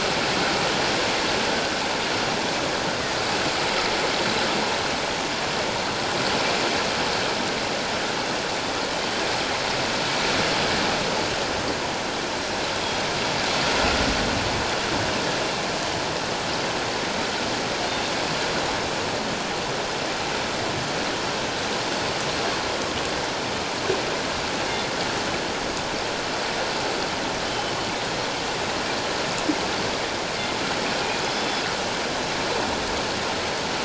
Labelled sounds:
27.5	27.7	killer whale, northern resident, G clan, 3.0 to 3.2 kHz
31.3	31.6	killer whale, northern resident, G clan, 3.4 to 5.2 kHz

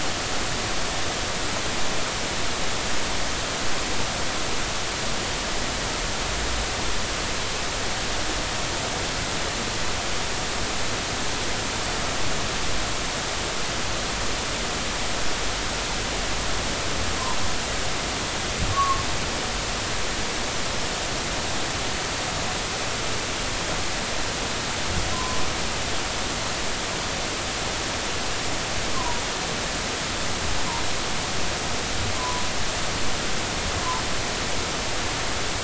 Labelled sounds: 18.7	19.0	humpback whale, 1.0 to 1.2 kHz
25.1	25.4	humpback whale, 0.93 to 1.1 kHz
29.0	29.2	humpback whale, 0.90 to 1.1 kHz
32.2	32.4	humpback whale, 0.93 to 1.2 kHz

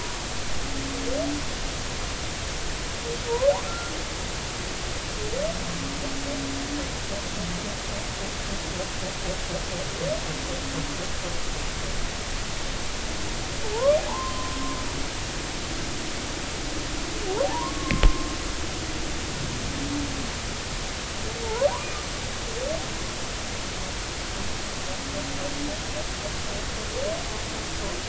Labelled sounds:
3.7	3.9	humpback whale, 1.3 to 1.4 kHz
13.7	14.5	humpback whale, 0.83 to 1.2 kHz
17.4	18.1	humpback whale, 0.80 to 1.2 kHz
21.4	21.7	humpback whale, 0.83 to 1.2 kHz

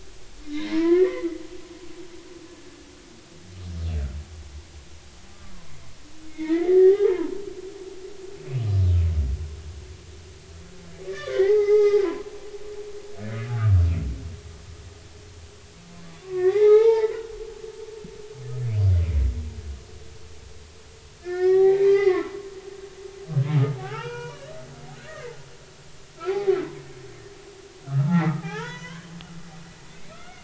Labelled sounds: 0.4	1.4	humpback whale, 0.93 to 2.3 kHz
6.3	7.4	humpback whale, 0.80 to 2.3 kHz
11.1	12.3	humpback whale, 0.80 to 2.4 kHz
13.5	13.7	humpback whale, 1.1 to 1.6 kHz
16.2	17.3	humpback whale, 0.80 to 2.3 kHz
21.2	22.4	humpback whale, 0.80 to 5.3 kHz
23.8	25.2	humpback whale, 0.80 to 6.3 kHz
26.2	26.6	humpback whale, 0.80 to 2.6 kHz
27.8	29.1	humpback whale, 0.80 to 3.5 kHz
29.9	30.4	humpback whale, 1.2 to 2.5 kHz

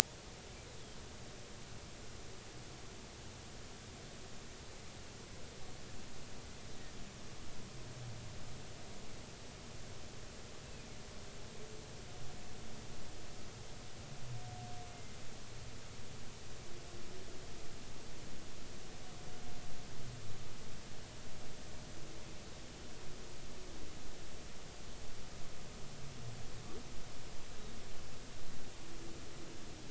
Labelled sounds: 10.6	10.9	humpback whale, 2.3 to 2.7 kHz

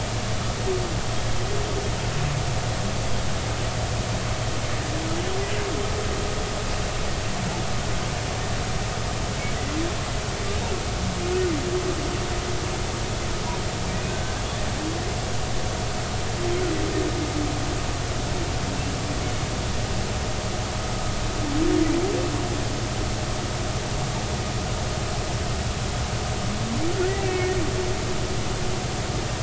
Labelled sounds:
27.0	27.6	humpback whale, 1.8 to 2.4 kHz

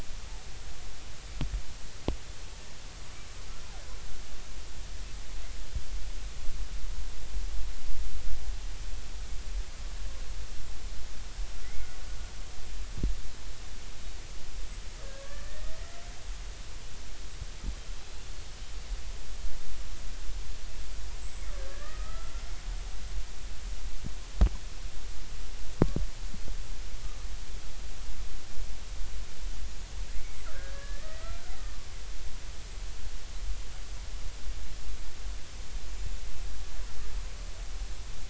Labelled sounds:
11.6	11.9	killer whale, Bigg's (transient), 1.9 to 2.2 kHz
15.2	15.8	killer whale, Bigg's (transient), 1.1 to 1.9 kHz
21.2	22.3	killer whale, Bigg's (transient), 1.1 to 7.8 kHz
29.6	31.3	killer whale, Bigg's (transient), 1.2 to 6.8 kHz

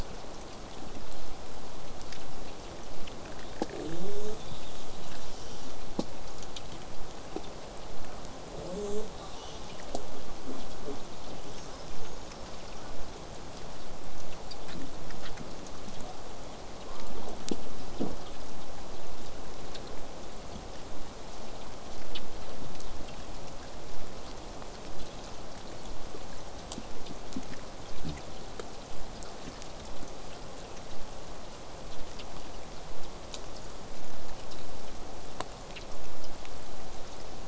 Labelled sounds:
3.7	5.8	killer whale, southern resident, J pod, call S10, 0.08 to 8.0 kHz
8.5	9.9	killer whale, southern resident, J pod, call S10, 0.12 to 8.0 kHz
11.4	12.3	killer whale, southern resident, J pod, 4.8 to 6.8 kHz
16.8	17.4	killer whale, southern resident, J pod, 0 to 1.3 kHz

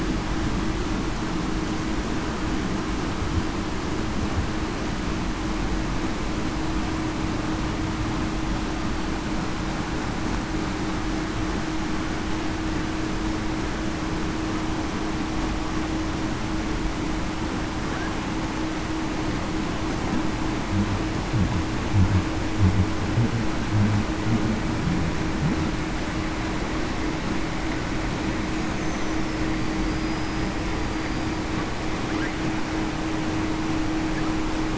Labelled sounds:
29.8	30.5	killer whale, Bigg's (transient), 4.8 to 5.1 kHz

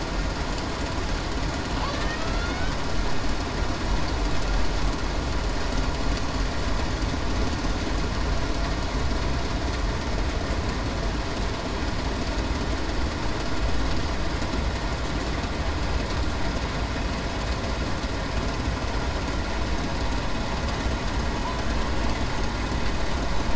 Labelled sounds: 1.9	2.2	killer whale, Bigg's (transient), 1.7 to 1.9 kHz

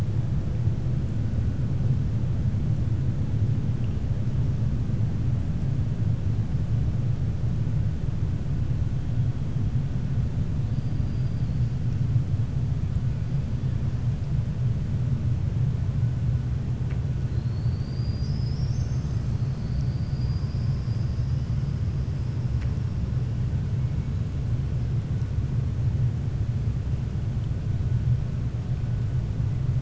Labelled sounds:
11.0	11.6	killer whale, 4.2 to 5.2 kHz

